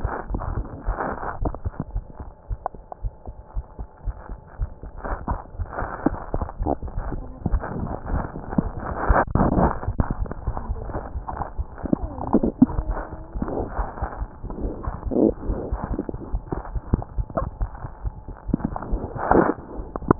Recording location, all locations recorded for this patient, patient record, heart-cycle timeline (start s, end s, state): mitral valve (MV)
aortic valve (AV)+mitral valve (MV)
#Age: Infant
#Sex: Male
#Height: 38.0 cm
#Weight: 24.0 kg
#Pregnancy status: False
#Murmur: Absent
#Murmur locations: nan
#Most audible location: nan
#Systolic murmur timing: nan
#Systolic murmur shape: nan
#Systolic murmur grading: nan
#Systolic murmur pitch: nan
#Systolic murmur quality: nan
#Diastolic murmur timing: nan
#Diastolic murmur shape: nan
#Diastolic murmur grading: nan
#Diastolic murmur pitch: nan
#Diastolic murmur quality: nan
#Outcome: Normal
#Campaign: 2015 screening campaign
0.00	2.47	unannotated
2.47	2.58	S1
2.58	2.70	systole
2.70	2.80	S2
2.80	3.01	diastole
3.01	3.14	S1
3.14	3.26	systole
3.26	3.36	S2
3.36	3.56	diastole
3.56	3.64	S1
3.64	3.78	systole
3.78	3.86	S2
3.86	4.06	diastole
4.06	4.16	S1
4.16	4.28	systole
4.28	4.38	S2
4.38	4.58	diastole
4.58	4.70	S1
4.70	4.84	systole
4.84	4.90	S2
4.90	5.08	diastole
5.08	5.20	S1
5.20	5.28	systole
5.28	5.38	S2
5.38	5.58	diastole
5.58	5.68	S1
5.68	5.78	systole
5.78	5.88	S2
5.88	6.04	diastole
6.04	6.18	S1
6.18	6.32	systole
6.32	6.46	S2
6.46	6.60	diastole
6.60	6.72	S1
6.72	6.84	systole
6.84	6.92	S2
6.92	20.19	unannotated